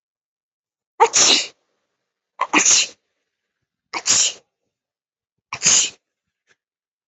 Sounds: Sneeze